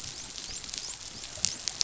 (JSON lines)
{"label": "biophony, dolphin", "recorder": "SoundTrap 500"}